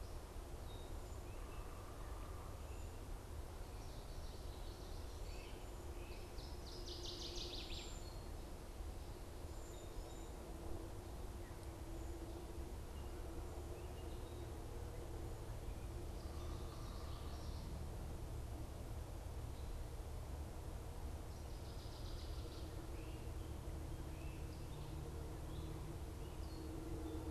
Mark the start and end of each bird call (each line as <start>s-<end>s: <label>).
0.0s-4.0s: Gray Catbird (Dumetella carolinensis)
1.1s-2.6s: unidentified bird
3.4s-5.1s: Common Yellowthroat (Geothlypis trichas)
6.1s-8.1s: Northern Waterthrush (Parkesia noveboracensis)
7.1s-10.5s: Cedar Waxwing (Bombycilla cedrorum)
15.8s-18.0s: Common Yellowthroat (Geothlypis trichas)
16.0s-17.8s: unidentified bird
21.1s-22.8s: Northern Waterthrush (Parkesia noveboracensis)
22.8s-24.5s: Great Crested Flycatcher (Myiarchus crinitus)
23.9s-27.3s: Gray Catbird (Dumetella carolinensis)